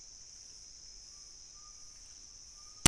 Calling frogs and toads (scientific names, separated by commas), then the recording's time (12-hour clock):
none
2:15am